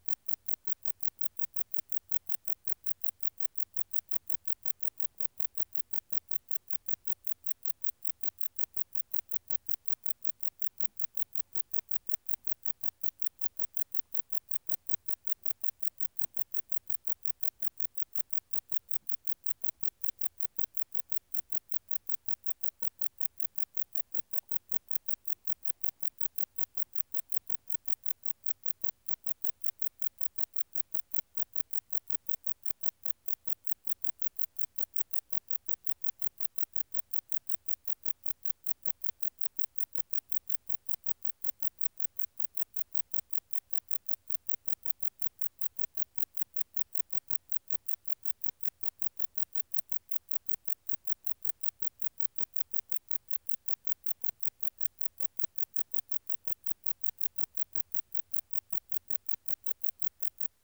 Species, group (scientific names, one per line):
Metrioptera brachyptera
Orthoptera